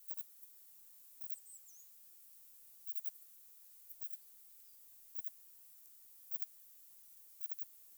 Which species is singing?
Poecilimon chopardi